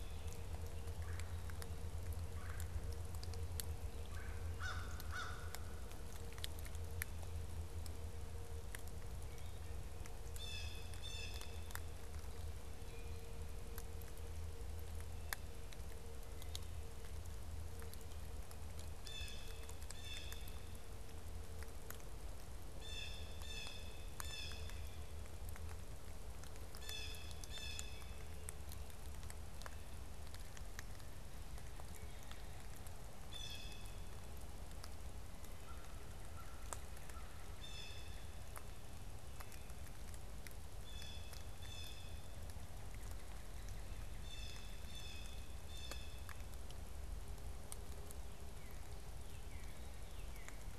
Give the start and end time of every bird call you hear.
[0.90, 2.90] Red-bellied Woodpecker (Melanerpes carolinus)
[4.10, 4.40] Red-bellied Woodpecker (Melanerpes carolinus)
[4.30, 5.60] American Crow (Corvus brachyrhynchos)
[10.10, 11.90] Blue Jay (Cyanocitta cristata)
[18.80, 20.80] Blue Jay (Cyanocitta cristata)
[22.60, 25.00] Blue Jay (Cyanocitta cristata)
[26.50, 28.20] Blue Jay (Cyanocitta cristata)
[33.20, 34.00] Blue Jay (Cyanocitta cristata)
[35.60, 37.30] American Crow (Corvus brachyrhynchos)
[37.60, 38.30] Blue Jay (Cyanocitta cristata)
[40.70, 42.40] Blue Jay (Cyanocitta cristata)
[42.20, 45.40] Northern Cardinal (Cardinalis cardinalis)
[44.00, 46.50] Blue Jay (Cyanocitta cristata)
[48.20, 50.60] Northern Cardinal (Cardinalis cardinalis)

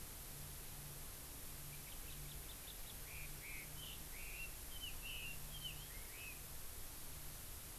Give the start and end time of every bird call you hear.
[1.74, 6.34] Chinese Hwamei (Garrulax canorus)

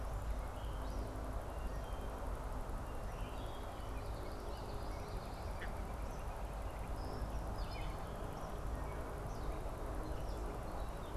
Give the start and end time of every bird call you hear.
[0.00, 2.23] Wood Thrush (Hylocichla mustelina)
[3.03, 3.73] Wood Thrush (Hylocichla mustelina)
[4.13, 5.63] Common Yellowthroat (Geothlypis trichas)
[6.73, 11.16] Gray Catbird (Dumetella carolinensis)

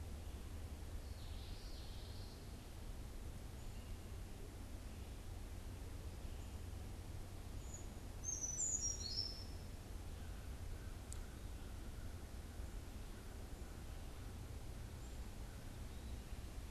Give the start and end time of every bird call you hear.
[0.90, 2.60] Common Yellowthroat (Geothlypis trichas)
[7.40, 9.60] Brown Creeper (Certhia americana)
[10.10, 15.90] American Crow (Corvus brachyrhynchos)

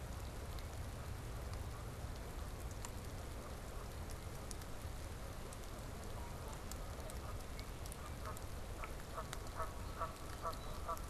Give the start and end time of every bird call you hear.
[6.08, 11.09] Canada Goose (Branta canadensis)

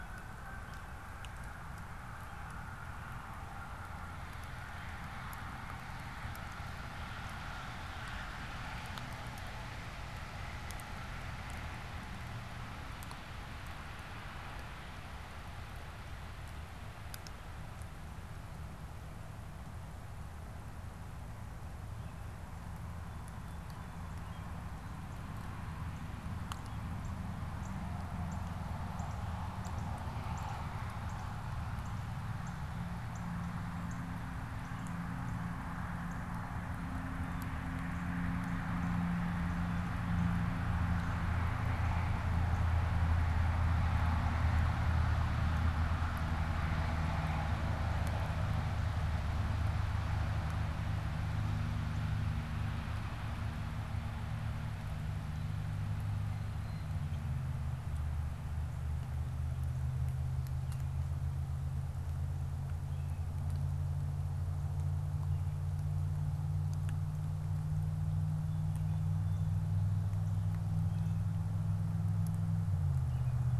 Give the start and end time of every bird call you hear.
[22.98, 25.18] Song Sparrow (Melospiza melodia)
[24.18, 24.58] American Robin (Turdus migratorius)
[26.58, 26.98] American Robin (Turdus migratorius)
[26.88, 29.28] Northern Cardinal (Cardinalis cardinalis)
[29.68, 36.48] Northern Cardinal (Cardinalis cardinalis)
[56.18, 56.98] Blue Jay (Cyanocitta cristata)
[62.78, 63.28] American Robin (Turdus migratorius)
[68.38, 69.88] Song Sparrow (Melospiza melodia)
[70.68, 73.48] American Robin (Turdus migratorius)

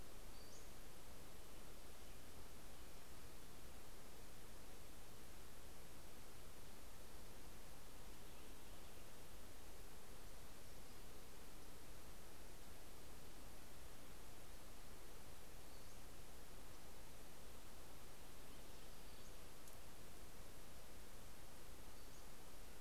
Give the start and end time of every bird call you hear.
[0.00, 1.00] Pacific-slope Flycatcher (Empidonax difficilis)
[6.50, 10.30] Purple Finch (Haemorhous purpureus)
[15.10, 16.30] Pacific-slope Flycatcher (Empidonax difficilis)
[18.60, 19.40] Pacific-slope Flycatcher (Empidonax difficilis)
[21.70, 22.70] Pacific-slope Flycatcher (Empidonax difficilis)

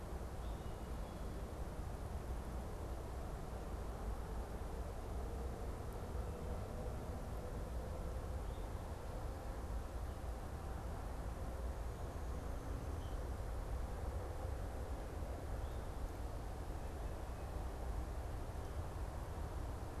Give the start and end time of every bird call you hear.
[0.00, 13.77] unidentified bird

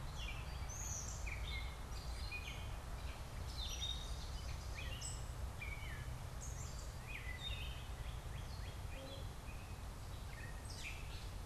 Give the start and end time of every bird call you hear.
[0.00, 11.45] Gray Catbird (Dumetella carolinensis)
[7.17, 9.37] Northern Cardinal (Cardinalis cardinalis)

